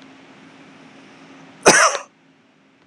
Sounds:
Cough